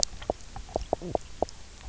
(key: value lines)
label: biophony, knock croak
recorder: SoundTrap 300